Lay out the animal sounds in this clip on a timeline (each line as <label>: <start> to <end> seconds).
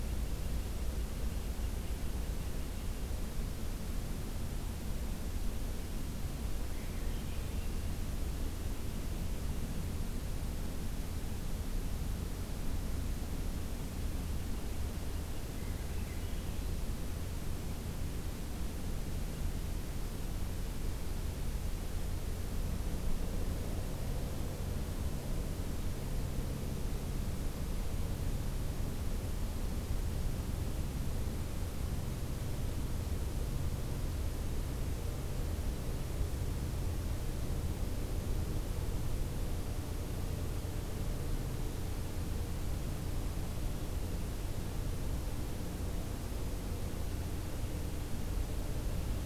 Swainson's Thrush (Catharus ustulatus): 6.6 to 8.0 seconds
Swainson's Thrush (Catharus ustulatus): 15.4 to 16.7 seconds